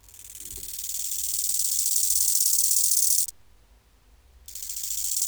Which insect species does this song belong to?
Chorthippus biguttulus